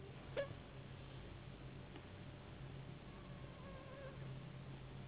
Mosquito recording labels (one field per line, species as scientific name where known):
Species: Anopheles gambiae s.s.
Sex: female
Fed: unfed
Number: one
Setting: insect culture